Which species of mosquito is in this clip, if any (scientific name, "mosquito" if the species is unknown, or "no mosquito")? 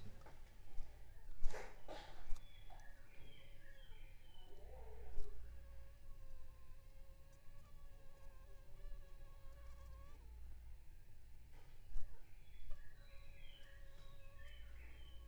Anopheles funestus s.l.